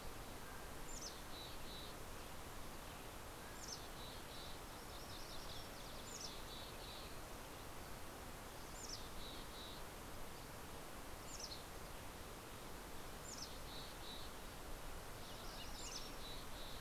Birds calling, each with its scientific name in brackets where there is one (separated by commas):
Mountain Chickadee (Poecile gambeli), MacGillivray's Warbler (Geothlypis tolmiei), Mountain Quail (Oreortyx pictus)